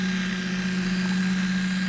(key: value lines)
label: anthrophony, boat engine
recorder: SoundTrap 500